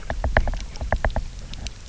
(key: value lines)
label: biophony, knock
recorder: SoundTrap 300